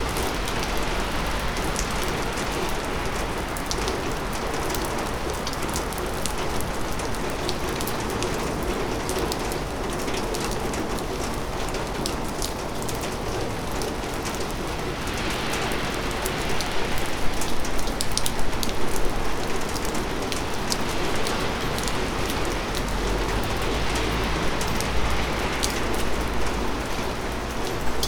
Is this weather?
yes